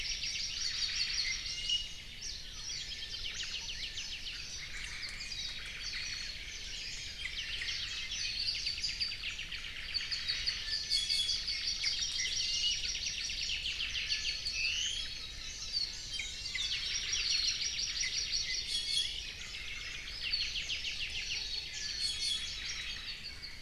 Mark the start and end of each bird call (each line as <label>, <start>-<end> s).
Apapane (Himatione sanguinea), 0.0-1.8 s
Omao (Myadestes obscurus), 0.5-1.5 s
Iiwi (Drepanis coccinea), 0.9-2.1 s
Warbling White-eye (Zosterops japonicus), 2.2-2.9 s
Apapane (Himatione sanguinea), 2.5-4.5 s
Omao (Myadestes obscurus), 3.1-3.7 s
Omao (Myadestes obscurus), 4.5-6.4 s
Apapane (Himatione sanguinea), 4.9-6.5 s
Iiwi (Drepanis coccinea), 7.1-7.7 s
Apapane (Himatione sanguinea), 7.4-12.1 s
Warbling White-eye (Zosterops japonicus), 8.1-9.3 s
Omao (Myadestes obscurus), 10.0-10.7 s
Iiwi (Drepanis coccinea), 10.6-11.5 s
Hawaii Amakihi (Chlorodrepanis virens), 11.6-13.6 s
Iiwi (Drepanis coccinea), 12.1-12.8 s
Apapane (Himatione sanguinea), 12.6-14.4 s
Omao (Myadestes obscurus), 13.7-14.2 s
Iiwi (Drepanis coccinea), 14.0-15.1 s
Omao (Myadestes obscurus), 14.6-15.0 s
Iiwi (Drepanis coccinea), 15.6-16.7 s
Apapane (Himatione sanguinea), 16.5-16.7 s
Hawaii Amakihi (Chlorodrepanis virens), 16.7-18.7 s
Iiwi (Drepanis coccinea), 17.1-17.6 s
Omao (Myadestes obscurus), 17.8-18.1 s
Iiwi (Drepanis coccinea), 18.4-19.2 s
Apapane (Himatione sanguinea), 19.9-21.4 s
Iiwi (Drepanis coccinea), 21.6-23.1 s
Omao (Myadestes obscurus), 22.5-23.2 s
Apapane (Himatione sanguinea), 22.8-23.6 s